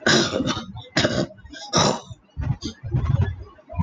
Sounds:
Throat clearing